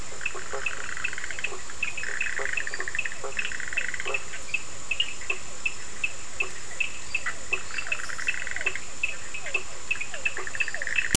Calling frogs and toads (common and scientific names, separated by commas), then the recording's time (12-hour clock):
two-colored oval frog (Elachistocleis bicolor), blacksmith tree frog (Boana faber), Bischoff's tree frog (Boana bischoffi), Cochran's lime tree frog (Sphaenorhynchus surdus), Physalaemus cuvieri
11:15pm